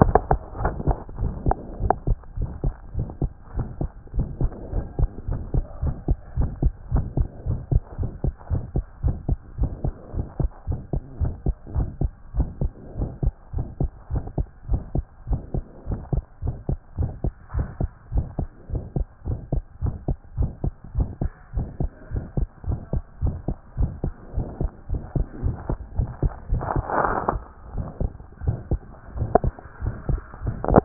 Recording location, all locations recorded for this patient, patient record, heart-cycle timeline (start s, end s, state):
pulmonary valve (PV)
aortic valve (AV)+pulmonary valve (PV)+tricuspid valve (TV)+mitral valve (MV)
#Age: Child
#Sex: Male
#Height: 133.0 cm
#Weight: 24.8 kg
#Pregnancy status: False
#Murmur: Present
#Murmur locations: aortic valve (AV)+mitral valve (MV)+pulmonary valve (PV)+tricuspid valve (TV)
#Most audible location: pulmonary valve (PV)
#Systolic murmur timing: Early-systolic
#Systolic murmur shape: Decrescendo
#Systolic murmur grading: II/VI
#Systolic murmur pitch: Medium
#Systolic murmur quality: Harsh
#Diastolic murmur timing: nan
#Diastolic murmur shape: nan
#Diastolic murmur grading: nan
#Diastolic murmur pitch: nan
#Diastolic murmur quality: nan
#Outcome: Abnormal
#Campaign: 2014 screening campaign
0.00	0.20	S1
0.20	0.30	systole
0.30	0.40	S2
0.40	0.60	diastole
0.60	0.74	S1
0.74	0.86	systole
0.86	0.98	S2
0.98	1.20	diastole
1.20	1.32	S1
1.32	1.46	systole
1.46	1.58	S2
1.58	1.82	diastole
1.82	1.96	S1
1.96	2.08	systole
2.08	2.18	S2
2.18	2.38	diastole
2.38	2.50	S1
2.50	2.64	systole
2.64	2.74	S2
2.74	2.96	diastole
2.96	3.08	S1
3.08	3.22	systole
3.22	3.32	S2
3.32	3.56	diastole
3.56	3.68	S1
3.68	3.82	systole
3.82	3.92	S2
3.92	4.16	diastole
4.16	4.28	S1
4.28	4.40	systole
4.40	4.52	S2
4.52	4.72	diastole
4.72	4.84	S1
4.84	4.98	systole
4.98	5.10	S2
5.10	5.30	diastole
5.30	5.42	S1
5.42	5.52	systole
5.52	5.64	S2
5.64	5.84	diastole
5.84	5.96	S1
5.96	6.06	systole
6.06	6.18	S2
6.18	6.38	diastole
6.38	6.52	S1
6.52	6.60	systole
6.60	6.74	S2
6.74	6.92	diastole
6.92	7.06	S1
7.06	7.18	systole
7.18	7.28	S2
7.28	7.48	diastole
7.48	7.60	S1
7.60	7.70	systole
7.70	7.82	S2
7.82	8.00	diastole
8.00	8.10	S1
8.10	8.22	systole
8.22	8.32	S2
8.32	8.52	diastole
8.52	8.64	S1
8.64	8.76	systole
8.76	8.84	S2
8.84	9.04	diastole
9.04	9.18	S1
9.18	9.30	systole
9.30	9.40	S2
9.40	9.60	diastole
9.60	9.70	S1
9.70	9.82	systole
9.82	9.92	S2
9.92	10.14	diastole
10.14	10.26	S1
10.26	10.40	systole
10.40	10.50	S2
10.50	10.70	diastole
10.70	10.82	S1
10.82	10.94	systole
10.94	11.02	S2
11.02	11.22	diastole
11.22	11.34	S1
11.34	11.46	systole
11.46	11.56	S2
11.56	11.76	diastole
11.76	11.88	S1
11.88	12.02	systole
12.02	12.14	S2
12.14	12.36	diastole
12.36	12.50	S1
12.50	12.62	systole
12.62	12.74	S2
12.74	12.98	diastole
12.98	13.10	S1
13.10	13.24	systole
13.24	13.34	S2
13.34	13.56	diastole
13.56	13.68	S1
13.68	13.80	systole
13.80	13.90	S2
13.90	14.12	diastole
14.12	14.24	S1
14.24	14.38	systole
14.38	14.48	S2
14.48	14.70	diastole
14.70	14.82	S1
14.82	14.96	systole
14.96	15.06	S2
15.06	15.28	diastole
15.28	15.40	S1
15.40	15.54	systole
15.54	15.64	S2
15.64	15.88	diastole
15.88	16.00	S1
16.00	16.14	systole
16.14	16.24	S2
16.24	16.44	diastole
16.44	16.56	S1
16.56	16.70	systole
16.70	16.80	S2
16.80	17.00	diastole
17.00	17.12	S1
17.12	17.24	systole
17.24	17.34	S2
17.34	17.56	diastole
17.56	17.68	S1
17.68	17.80	systole
17.80	17.90	S2
17.90	18.12	diastole
18.12	18.26	S1
18.26	18.40	systole
18.40	18.50	S2
18.50	18.72	diastole
18.72	18.84	S1
18.84	19.00	systole
19.00	19.08	S2
19.08	19.28	diastole
19.28	19.40	S1
19.40	19.52	systole
19.52	19.64	S2
19.64	19.84	diastole
19.84	19.96	S1
19.96	20.08	systole
20.08	20.18	S2
20.18	20.38	diastole
20.38	20.52	S1
20.52	20.64	systole
20.64	20.74	S2
20.74	20.96	diastole
20.96	21.08	S1
21.08	21.22	systole
21.22	21.32	S2
21.32	21.56	diastole
21.56	21.68	S1
21.68	21.80	systole
21.80	21.90	S2
21.90	22.12	diastole
22.12	22.24	S1
22.24	22.38	systole
22.38	22.48	S2
22.48	22.68	diastole
22.68	22.80	S1
22.80	22.94	systole
22.94	23.04	S2
23.04	23.24	diastole
23.24	23.36	S1
23.36	23.48	systole
23.48	23.58	S2
23.58	23.78	diastole
23.78	23.92	S1
23.92	24.04	systole
24.04	24.14	S2
24.14	24.36	diastole
24.36	24.48	S1
24.48	24.62	systole
24.62	24.72	S2
24.72	24.92	diastole
24.92	25.02	S1
25.02	25.16	systole
25.16	25.28	S2
25.28	25.44	diastole
25.44	25.56	S1
25.56	25.68	systole
25.68	25.78	S2
25.78	25.98	diastole
25.98	26.10	S1
26.10	26.22	systole
26.22	26.32	S2
26.32	26.50	diastole
26.50	26.64	S1
26.64	26.76	systole
26.76	26.86	S2
26.86	27.08	diastole
27.08	27.22	S1
27.22	27.36	systole
27.36	27.48	S2
27.48	27.74	diastole
27.74	27.88	S1
27.88	28.06	systole
28.06	28.18	S2
28.18	28.44	diastole
28.44	28.60	S1
28.60	28.80	systole
28.80	28.92	S2
28.92	29.16	diastole
29.16	29.30	S1
29.30	29.44	systole
29.44	29.56	S2
29.56	29.82	diastole
29.82	29.96	S1
29.96	30.10	systole
30.10	30.22	S2
30.22	30.44	diastole
30.44	30.56	S1
30.56	30.68	systole
30.68	30.84	S2
30.84	30.85	diastole